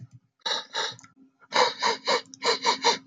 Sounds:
Sniff